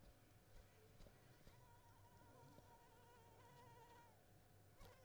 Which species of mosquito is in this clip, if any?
Anopheles squamosus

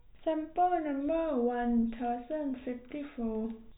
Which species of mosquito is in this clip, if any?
no mosquito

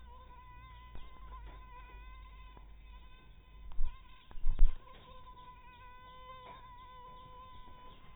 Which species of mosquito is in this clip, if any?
mosquito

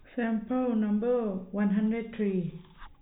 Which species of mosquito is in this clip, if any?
no mosquito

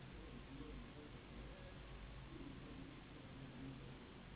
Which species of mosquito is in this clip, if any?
Anopheles gambiae s.s.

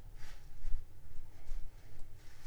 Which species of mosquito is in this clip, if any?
Anopheles arabiensis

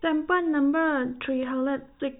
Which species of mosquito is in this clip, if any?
no mosquito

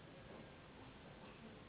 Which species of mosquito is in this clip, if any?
Anopheles gambiae s.s.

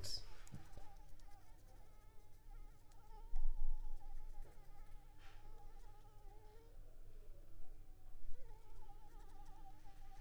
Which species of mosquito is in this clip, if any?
Anopheles arabiensis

